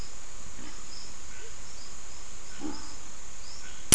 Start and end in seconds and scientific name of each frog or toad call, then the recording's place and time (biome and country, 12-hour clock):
none
Atlantic Forest, Brazil, 5:45pm